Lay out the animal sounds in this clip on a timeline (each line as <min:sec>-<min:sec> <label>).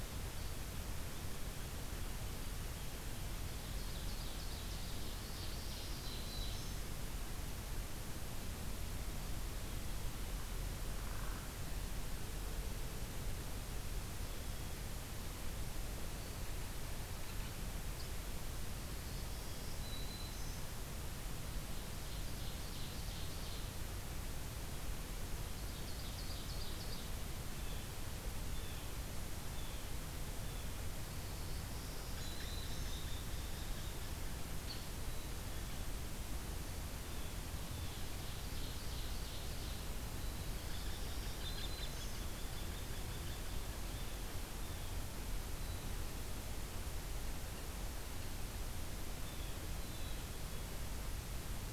0:03.4-0:06.8 Ovenbird (Seiurus aurocapilla)
0:05.5-0:06.8 Black-throated Green Warbler (Setophaga virens)
0:10.7-0:11.5 Hairy Woodpecker (Dryobates villosus)
0:19.1-0:20.5 Black-throated Green Warbler (Setophaga virens)
0:21.5-0:23.6 Ovenbird (Seiurus aurocapilla)
0:25.5-0:27.1 Ovenbird (Seiurus aurocapilla)
0:27.5-0:30.7 Blue Jay (Cyanocitta cristata)
0:31.2-0:33.0 Black-throated Green Warbler (Setophaga virens)
0:32.1-0:34.2 Hairy Woodpecker (Dryobates villosus)
0:34.7-0:34.8 Hairy Woodpecker (Dryobates villosus)
0:38.0-0:39.8 Ovenbird (Seiurus aurocapilla)
0:40.5-0:43.7 Hairy Woodpecker (Dryobates villosus)
0:40.6-0:42.2 Black-throated Green Warbler (Setophaga virens)
0:43.9-0:45.0 Blue Jay (Cyanocitta cristata)
0:49.1-0:50.3 Blue Jay (Cyanocitta cristata)